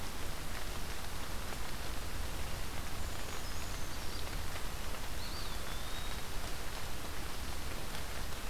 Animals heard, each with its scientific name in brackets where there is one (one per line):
Eastern Wood-Pewee (Contopus virens)
Brown Creeper (Certhia americana)